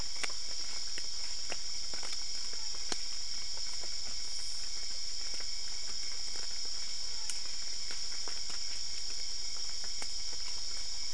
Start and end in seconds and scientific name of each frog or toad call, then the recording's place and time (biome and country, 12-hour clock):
2.4	3.2	Physalaemus marmoratus
7.0	7.7	Physalaemus marmoratus
Cerrado, Brazil, 1:45am